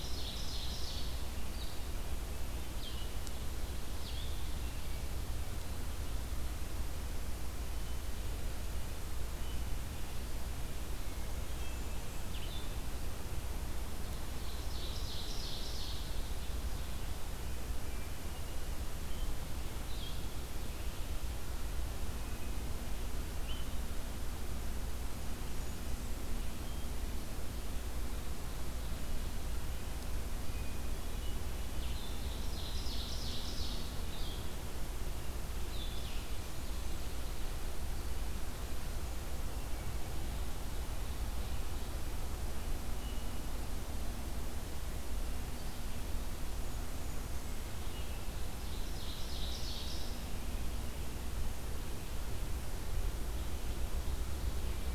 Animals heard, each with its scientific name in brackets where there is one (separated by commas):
Wood Thrush (Hylocichla mustelina), Ovenbird (Seiurus aurocapilla), Golden-crowned Kinglet (Regulus satrapa), Blue-headed Vireo (Vireo solitarius)